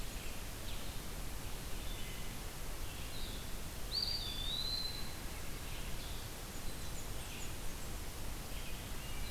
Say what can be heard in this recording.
Blue-headed Vireo, Red-eyed Vireo, Wood Thrush, Eastern Wood-Pewee, Blackburnian Warbler